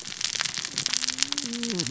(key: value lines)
label: biophony, cascading saw
recorder: SoundTrap 600 or HydroMoth